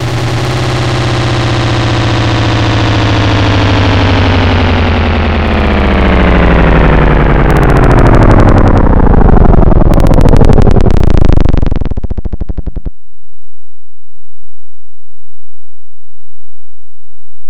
Is it raining?
no